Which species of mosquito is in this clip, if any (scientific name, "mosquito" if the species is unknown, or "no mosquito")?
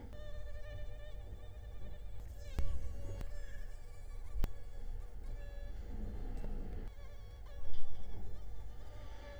Culex quinquefasciatus